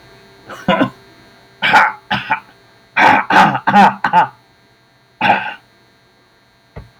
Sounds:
Throat clearing